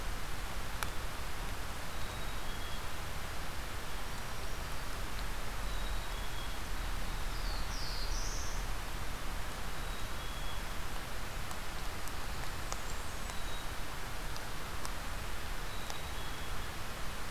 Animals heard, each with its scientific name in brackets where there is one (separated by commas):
Blackburnian Warbler (Setophaga fusca), Black-throated Blue Warbler (Setophaga caerulescens), Black-throated Green Warbler (Setophaga virens), Black-capped Chickadee (Poecile atricapillus)